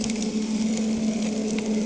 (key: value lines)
label: anthrophony, boat engine
recorder: HydroMoth